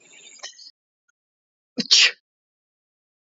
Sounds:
Sneeze